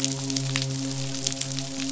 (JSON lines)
{"label": "biophony, midshipman", "recorder": "SoundTrap 500"}